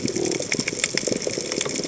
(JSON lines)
{"label": "biophony", "recorder": "HydroMoth"}